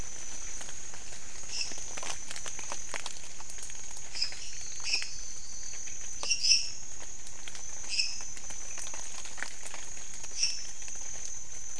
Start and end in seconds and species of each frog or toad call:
1.4	2.0	Dendropsophus minutus
4.0	8.5	Dendropsophus minutus
4.2	5.9	Elachistocleis matogrosso
10.3	10.7	Dendropsophus minutus
12:30am

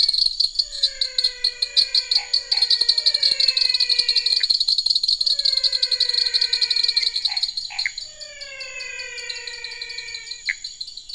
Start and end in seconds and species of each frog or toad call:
0.0	11.1	Dendropsophus nanus
0.0	11.1	Physalaemus albonotatus
2.1	2.7	Boana raniceps
4.4	4.5	Pithecopus azureus
7.2	7.9	Boana raniceps
7.8	8.0	Pithecopus azureus
10.4	10.6	Pithecopus azureus
~8pm

